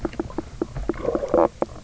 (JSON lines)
{"label": "biophony, knock croak", "recorder": "SoundTrap 300"}